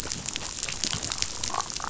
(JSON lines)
{"label": "biophony, damselfish", "recorder": "SoundTrap 500"}